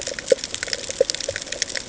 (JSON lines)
{"label": "ambient", "recorder": "HydroMoth"}